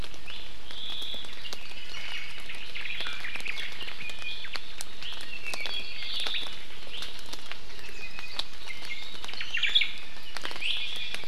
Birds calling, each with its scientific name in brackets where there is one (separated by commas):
Hawaii Amakihi (Chlorodrepanis virens), Omao (Myadestes obscurus), Iiwi (Drepanis coccinea), Apapane (Himatione sanguinea)